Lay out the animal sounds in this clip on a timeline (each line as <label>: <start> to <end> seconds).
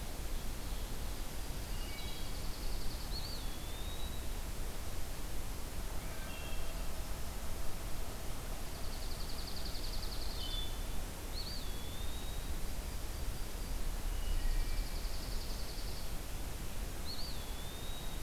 Dark-eyed Junco (Junco hyemalis): 1.5 to 3.2 seconds
Wood Thrush (Hylocichla mustelina): 1.6 to 2.6 seconds
Eastern Wood-Pewee (Contopus virens): 3.1 to 4.4 seconds
Wood Thrush (Hylocichla mustelina): 6.0 to 6.9 seconds
Dark-eyed Junco (Junco hyemalis): 8.4 to 10.8 seconds
Wood Thrush (Hylocichla mustelina): 10.2 to 10.9 seconds
Eastern Wood-Pewee (Contopus virens): 11.1 to 12.5 seconds
Yellow-rumped Warbler (Setophaga coronata): 12.4 to 13.8 seconds
Wood Thrush (Hylocichla mustelina): 13.9 to 15.1 seconds
Dark-eyed Junco (Junco hyemalis): 14.0 to 16.2 seconds
Eastern Wood-Pewee (Contopus virens): 16.9 to 18.2 seconds